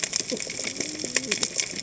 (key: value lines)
label: biophony, cascading saw
recorder: HydroMoth